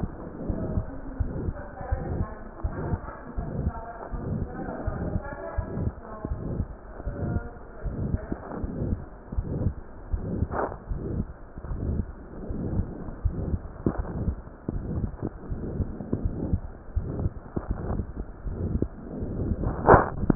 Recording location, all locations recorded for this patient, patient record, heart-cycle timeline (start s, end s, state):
aortic valve (AV)
aortic valve (AV)+pulmonary valve (PV)+tricuspid valve (TV)+mitral valve (MV)
#Age: Adolescent
#Sex: Female
#Height: 147.0 cm
#Weight: 36.1 kg
#Pregnancy status: False
#Murmur: Present
#Murmur locations: aortic valve (AV)+mitral valve (MV)+pulmonary valve (PV)+tricuspid valve (TV)
#Most audible location: pulmonary valve (PV)
#Systolic murmur timing: Mid-systolic
#Systolic murmur shape: Diamond
#Systolic murmur grading: III/VI or higher
#Systolic murmur pitch: High
#Systolic murmur quality: Harsh
#Diastolic murmur timing: nan
#Diastolic murmur shape: nan
#Diastolic murmur grading: nan
#Diastolic murmur pitch: nan
#Diastolic murmur quality: nan
#Outcome: Abnormal
#Campaign: 2015 screening campaign
0.00	0.09	unannotated
0.09	0.48	diastole
0.48	0.62	S1
0.62	0.70	systole
0.70	0.84	S2
0.84	1.18	diastole
1.18	1.28	S1
1.28	1.43	systole
1.43	1.54	S2
1.54	1.86	diastole
1.86	2.02	S1
2.02	2.17	systole
2.17	2.28	S2
2.28	2.64	diastole
2.64	2.76	S1
2.76	2.89	systole
2.89	3.00	S2
3.00	3.36	diastole
3.36	3.48	S1
3.48	3.60	systole
3.60	3.72	S2
3.72	4.12	diastole
4.12	4.21	S1
4.21	4.38	systole
4.38	4.49	S2
4.49	4.84	diastole
4.84	4.93	S1
4.93	5.10	systole
5.10	5.22	S2
5.22	5.54	diastole
5.54	5.66	S1
5.66	5.82	systole
5.82	5.94	S2
5.94	6.27	diastole
6.27	6.39	S1
6.39	6.52	systole
6.52	6.68	S2
6.68	7.05	diastole
7.05	7.16	S1
7.16	7.33	systole
7.33	7.43	S2
7.43	7.84	diastole
7.84	7.93	S1
7.93	8.12	systole
8.12	8.22	S2
8.22	8.62	diastole
8.62	8.74	S1
8.74	8.84	systole
8.84	9.00	S2
9.00	9.34	diastole
9.34	9.50	S1
9.50	9.60	systole
9.60	9.74	S2
9.74	10.12	diastole
10.12	10.26	S1
10.26	10.34	systole
10.34	10.50	S2
10.50	10.90	diastole
10.90	11.02	S1
11.02	11.12	systole
11.12	11.28	S2
11.28	11.67	diastole
11.67	11.80	S1
11.80	11.93	systole
11.93	12.06	S2
12.06	12.45	diastole
12.45	12.60	S1
12.60	12.70	systole
12.70	12.86	S2
12.86	13.22	diastole
13.22	13.33	S1
13.33	13.50	systole
13.50	13.62	S2
13.62	13.95	diastole
13.95	14.07	S1
14.07	14.22	systole
14.22	14.34	S2
14.34	14.70	diastole
14.70	14.86	S1
14.86	14.94	systole
14.94	15.10	S2
15.10	15.50	diastole
15.50	15.64	S1
15.64	15.74	systole
15.74	15.88	S2
15.88	16.24	diastole
16.24	16.38	S1
16.38	16.48	systole
16.48	16.60	S2
16.60	16.94	diastole
16.94	17.08	S1
17.08	17.16	systole
17.16	17.30	S2
17.30	17.68	diastole
17.68	17.80	S1
17.80	17.88	systole
17.88	18.02	S2
18.02	18.46	diastole
18.46	18.55	S1
18.55	18.70	systole
18.70	18.80	S2
18.80	19.20	diastole
19.20	20.35	unannotated